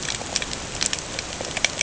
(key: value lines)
label: ambient
recorder: HydroMoth